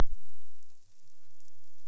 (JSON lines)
{"label": "biophony", "recorder": "SoundTrap 300"}